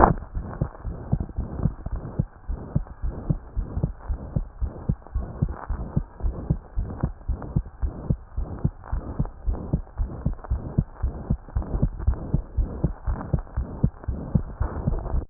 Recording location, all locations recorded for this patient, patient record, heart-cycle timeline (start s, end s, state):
pulmonary valve (PV)
aortic valve (AV)+pulmonary valve (PV)+tricuspid valve (TV)+mitral valve (MV)
#Age: Child
#Sex: Male
#Height: 129.0 cm
#Weight: 20.0 kg
#Pregnancy status: False
#Murmur: Present
#Murmur locations: aortic valve (AV)+mitral valve (MV)+pulmonary valve (PV)+tricuspid valve (TV)
#Most audible location: tricuspid valve (TV)
#Systolic murmur timing: Holosystolic
#Systolic murmur shape: Plateau
#Systolic murmur grading: III/VI or higher
#Systolic murmur pitch: High
#Systolic murmur quality: Harsh
#Diastolic murmur timing: nan
#Diastolic murmur shape: nan
#Diastolic murmur grading: nan
#Diastolic murmur pitch: nan
#Diastolic murmur quality: nan
#Outcome: Abnormal
#Campaign: 2014 screening campaign
0.00	0.18	S2
0.18	0.36	diastole
0.36	0.46	S1
0.46	0.60	systole
0.60	0.68	S2
0.68	0.86	diastole
0.86	0.96	S1
0.96	1.12	systole
1.12	1.22	S2
1.22	1.38	diastole
1.38	1.48	S1
1.48	1.62	systole
1.62	1.72	S2
1.72	1.92	diastole
1.92	2.02	S1
2.02	2.18	systole
2.18	2.26	S2
2.26	2.48	diastole
2.48	2.60	S1
2.60	2.74	systole
2.74	2.84	S2
2.84	3.04	diastole
3.04	3.14	S1
3.14	3.28	systole
3.28	3.38	S2
3.38	3.56	diastole
3.56	3.68	S1
3.68	3.80	systole
3.80	3.90	S2
3.90	4.08	diastole
4.08	4.18	S1
4.18	4.34	systole
4.34	4.46	S2
4.46	4.62	diastole
4.62	4.72	S1
4.72	4.88	systole
4.88	4.96	S2
4.96	5.16	diastole
5.16	5.26	S1
5.26	5.40	systole
5.40	5.52	S2
5.52	5.70	diastole
5.70	5.82	S1
5.82	5.96	systole
5.96	6.04	S2
6.04	6.24	diastole
6.24	6.36	S1
6.36	6.48	systole
6.48	6.58	S2
6.58	6.78	diastole
6.78	6.90	S1
6.90	7.02	systole
7.02	7.12	S2
7.12	7.28	diastole
7.28	7.40	S1
7.40	7.54	systole
7.54	7.64	S2
7.64	7.82	diastole
7.82	7.94	S1
7.94	8.08	systole
8.08	8.18	S2
8.18	8.38	diastole
8.38	8.48	S1
8.48	8.62	systole
8.62	8.72	S2
8.72	8.92	diastole
8.92	9.04	S1
9.04	9.18	systole
9.18	9.28	S2
9.28	9.46	diastole
9.46	9.58	S1
9.58	9.72	systole
9.72	9.82	S2
9.82	10.00	diastole
10.00	10.10	S1
10.10	10.24	systole
10.24	10.36	S2
10.36	10.50	diastole
10.50	10.62	S1
10.62	10.76	systole
10.76	10.86	S2
10.86	11.02	diastole
11.02	11.14	S1
11.14	11.30	systole
11.30	11.38	S2
11.38	11.56	diastole
11.56	11.66	S1
11.66	11.80	systole
11.80	11.90	S2
11.90	12.06	diastole
12.06	12.18	S1
12.18	12.32	systole
12.32	12.42	S2
12.42	12.58	diastole
12.58	12.68	S1
12.68	12.82	systole
12.82	12.92	S2
12.92	13.08	diastole
13.08	13.18	S1
13.18	13.32	systole
13.32	13.42	S2
13.42	13.58	diastole
13.58	13.68	S1
13.68	13.82	systole
13.82	13.92	S2
13.92	14.08	diastole
14.08	14.20	S1
14.20	14.34	systole
14.34	14.46	S2
14.46	14.64	diastole
14.64	14.70	S1
14.70	14.86	systole
14.86	14.94	S2
14.94	15.12	diastole
15.12	15.22	S1
15.22	15.30	systole